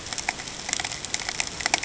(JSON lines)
{"label": "ambient", "recorder": "HydroMoth"}